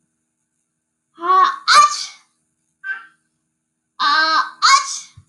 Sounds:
Sneeze